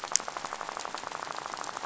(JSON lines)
{"label": "biophony, rattle", "recorder": "SoundTrap 500"}